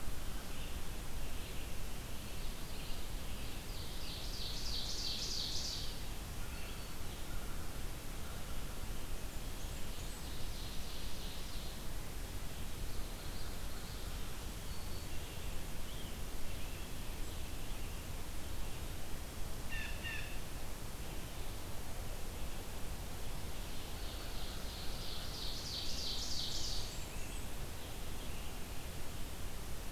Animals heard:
Blackburnian Warbler (Setophaga fusca), Red-eyed Vireo (Vireo olivaceus), Blue Jay (Cyanocitta cristata), Black-throated Green Warbler (Setophaga virens), Ovenbird (Seiurus aurocapilla)

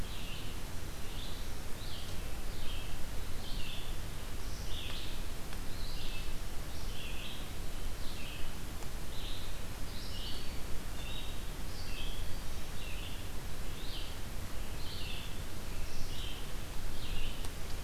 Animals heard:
Red-eyed Vireo (Vireo olivaceus), Black-throated Green Warbler (Setophaga virens)

